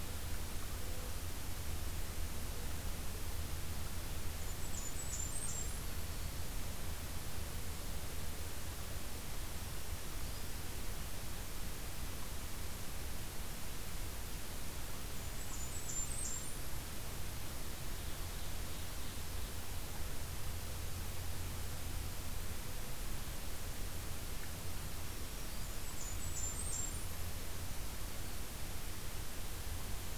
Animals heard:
Ovenbird (Seiurus aurocapilla), Black-throated Green Warbler (Setophaga virens), Blackburnian Warbler (Setophaga fusca)

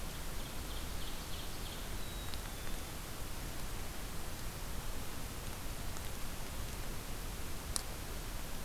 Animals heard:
Ovenbird (Seiurus aurocapilla), Black-capped Chickadee (Poecile atricapillus)

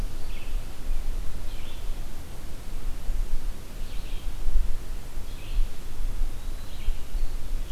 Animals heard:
Blue-headed Vireo (Vireo solitarius), Eastern Wood-Pewee (Contopus virens)

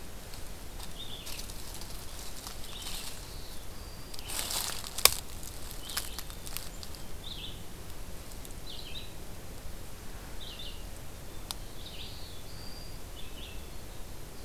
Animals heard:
Winter Wren (Troglodytes hiemalis), Black-throated Blue Warbler (Setophaga caerulescens), Black-capped Chickadee (Poecile atricapillus), Red-eyed Vireo (Vireo olivaceus)

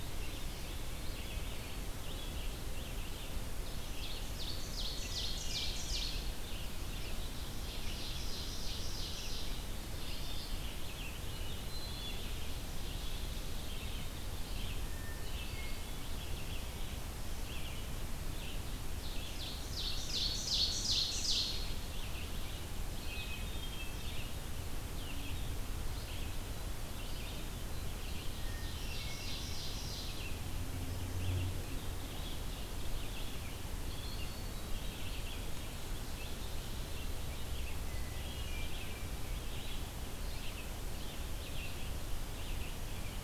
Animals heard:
Red-eyed Vireo (Vireo olivaceus), Hermit Thrush (Catharus guttatus), Ovenbird (Seiurus aurocapilla)

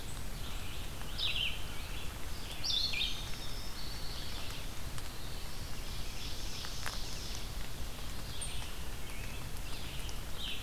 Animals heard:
Indigo Bunting (Passerina cyanea), Black-throated Blue Warbler (Setophaga caerulescens), Ovenbird (Seiurus aurocapilla), Red-eyed Vireo (Vireo olivaceus)

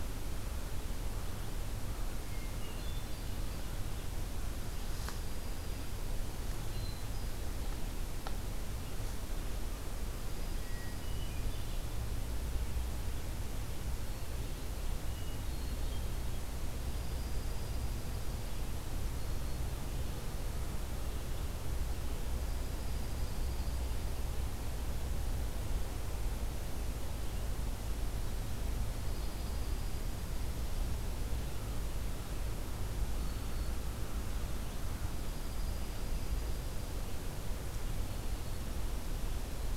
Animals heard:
Dark-eyed Junco (Junco hyemalis), Hermit Thrush (Catharus guttatus)

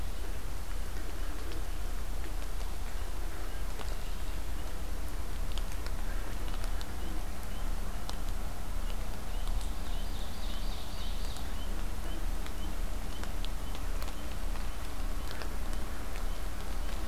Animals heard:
Ovenbird (Seiurus aurocapilla)

